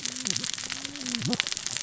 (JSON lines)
{"label": "biophony, cascading saw", "recorder": "SoundTrap 600 or HydroMoth"}